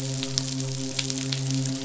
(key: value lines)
label: biophony, midshipman
recorder: SoundTrap 500